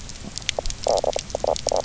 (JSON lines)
{"label": "biophony, knock croak", "recorder": "SoundTrap 300"}